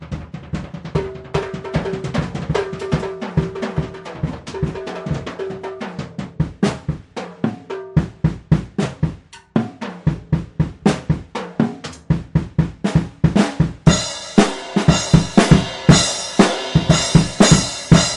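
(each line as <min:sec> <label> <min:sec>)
0:00.0 Slightly hollow drum sounds transition from fast, chaotic playing to a slower, steady beat. 0:18.2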